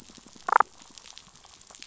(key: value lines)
label: biophony, damselfish
recorder: SoundTrap 500

label: biophony
recorder: SoundTrap 500